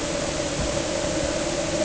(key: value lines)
label: anthrophony, boat engine
recorder: HydroMoth